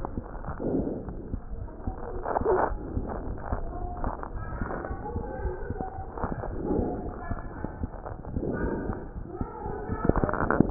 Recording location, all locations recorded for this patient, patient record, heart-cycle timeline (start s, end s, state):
aortic valve (AV)
aortic valve (AV)+pulmonary valve (PV)+tricuspid valve (TV)+mitral valve (MV)
#Age: Child
#Sex: Male
#Height: 113.0 cm
#Weight: 18.4 kg
#Pregnancy status: False
#Murmur: Absent
#Murmur locations: nan
#Most audible location: nan
#Systolic murmur timing: nan
#Systolic murmur shape: nan
#Systolic murmur grading: nan
#Systolic murmur pitch: nan
#Systolic murmur quality: nan
#Diastolic murmur timing: nan
#Diastolic murmur shape: nan
#Diastolic murmur grading: nan
#Diastolic murmur pitch: nan
#Diastolic murmur quality: nan
#Outcome: Normal
#Campaign: 2015 screening campaign
0.00	4.80	unannotated
4.80	4.88	diastole
4.88	4.97	S1
4.97	5.14	systole
5.14	5.21	S2
5.21	5.43	diastole
5.43	5.51	S1
5.51	5.67	systole
5.67	5.75	S2
5.75	5.96	diastole
5.96	6.06	S1
6.06	6.18	systole
6.18	6.29	S2
6.29	6.49	diastole
6.49	6.62	S1
6.62	6.76	systole
6.76	6.84	S2
6.84	7.05	diastole
7.05	7.12	S1
7.12	7.28	systole
7.28	7.36	S2
7.36	7.57	diastole
7.57	7.67	S1
7.67	7.79	systole
7.79	7.88	S2
7.88	8.06	diastole
8.06	8.17	S1
8.17	8.33	systole
8.33	8.42	S2
8.42	8.60	diastole
8.60	8.73	S1
8.73	8.86	systole
8.86	8.96	S2
8.96	9.13	diastole
9.13	9.24	S1
9.24	9.38	systole
9.38	9.47	S2
9.47	9.64	diastole
9.64	9.74	S1
9.74	9.90	systole
9.90	10.70	unannotated